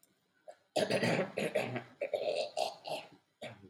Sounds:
Cough